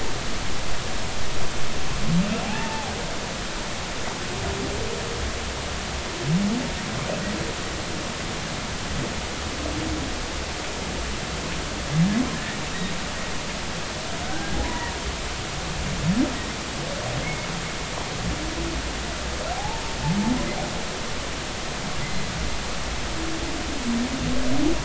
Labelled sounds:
2.4	2.9	humpback whale, 0.80 to 0.96 kHz
14.2	15.0	humpback whale, 0.90 to 1.7 kHz
17.2	17.5	humpback whale, 2.1 to 2.3 kHz
19.5	19.8	humpback whale, 0.80 to 0.96 kHz

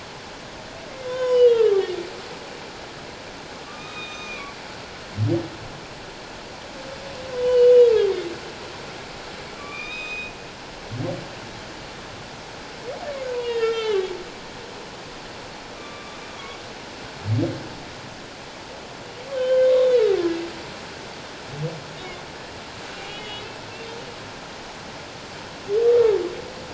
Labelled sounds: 1.1	1.7	humpback whale, 0.94 to 6.8 kHz
3.6	4.6	humpback whale, 1.1 to 6.2 kHz
7.3	7.7	humpback whale, 0.94 to 4.6 kHz
9.6	10.3	humpback whale, 1.1 to 6.3 kHz
13.3	14.0	humpback whale, 0.91 to 5.2 kHz
15.8	16.2	humpback whale, 1.1 to 2.5 kHz
19.3	20.1	humpback whale, 1.5 to 3.8 kHz
22.9	23.5	humpback whale, 2.2 to 3.5 kHz

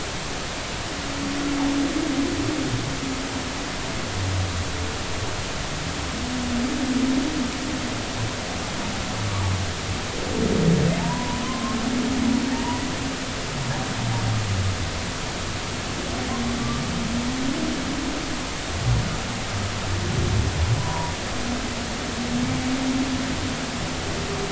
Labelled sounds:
9.2	9.6	humpback whale, 1.0 to 1.2 kHz
11.0	11.8	humpback whale, 0.83 to 1.1 kHz
12.5	12.8	humpback whale, 0.86 to 1.1 kHz
20.8	21.1	humpback whale, 0.90 to 1.1 kHz

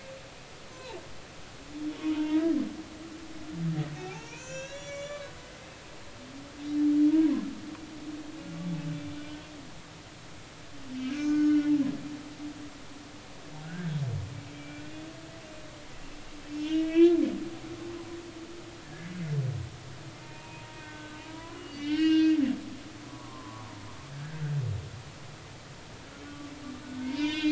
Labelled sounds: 0.7	1.0	humpback whale, 0.83 to 1.1 kHz
2.0	2.5	humpback whale, 0.86 to 1.0 kHz
4.0	5.3	humpback whale, 0.80 to 7.5 kHz
8.9	9.4	humpback whale, 1.4 to 2.4 kHz
11.1	11.7	humpback whale, 1.1 to 6.6 kHz
13.6	14.0	humpback whale, 1.4 to 1.8 kHz
14.5	14.8	humpback whale, 2.3 to 2.4 kHz
16.4	17.2	humpback whale, 1.6 to 3.6 kHz
20.2	22.4	humpback whale, 0.90 to 5.4 kHz
23.0	23.7	humpback whale, 0.90 to 1.2 kHz
26.2	27.5	humpback whale, 0.90 to 5.3 kHz

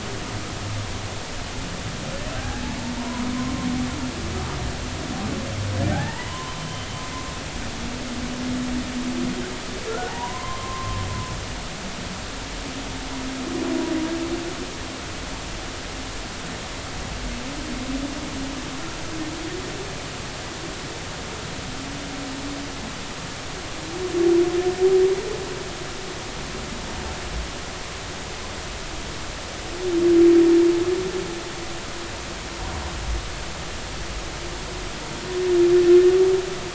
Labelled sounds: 2.4	2.6	humpback whale, 1.5 to 1.7 kHz
2.9	3.2	humpback whale, 0.90 to 1.1 kHz
5.9	6.9	humpback whale, 0.80 to 3.1 kHz
9.9	11.0	humpback whale, 0.80 to 1.5 kHz

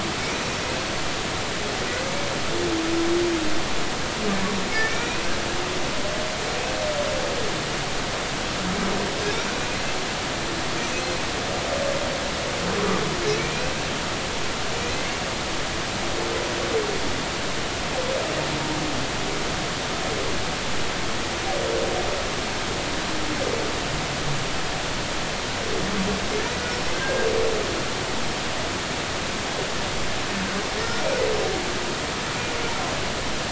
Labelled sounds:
4.7	5.2	humpback whale, 1.7 to 2.6 kHz
13.4	13.7	humpback whale, 2.2 to 2.7 kHz
26.9	27.3	humpback whale, 1.5 to 1.7 kHz

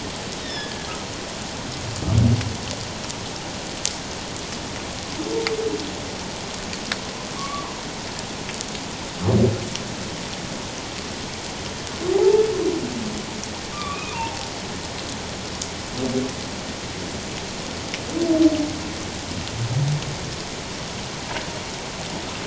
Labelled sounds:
0.4	1.0	humpback whale, 1.6 to 5.5 kHz
7.4	7.8	humpback whale, 0.94 to 1.2 kHz
12.1	12.4	humpback whale, 0.78 to 0.91 kHz
13.7	14.5	humpback whale, 0.78 to 2.6 kHz

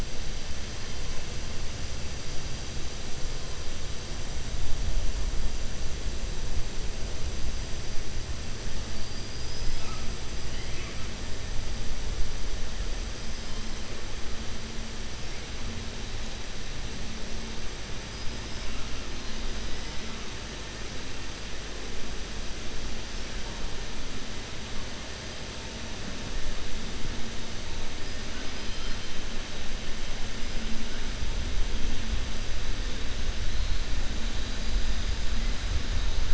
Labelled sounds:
8.9	9.9	killer whale, 4.3 to 5.8 kHz
10.4	11.0	killer whale, 1.1 to 3.2 kHz

